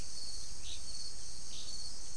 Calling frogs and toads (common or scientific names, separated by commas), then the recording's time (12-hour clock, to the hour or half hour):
none
6:30pm